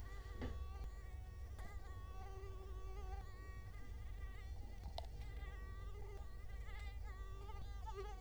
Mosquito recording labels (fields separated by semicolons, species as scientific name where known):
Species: Culex quinquefasciatus; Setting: cup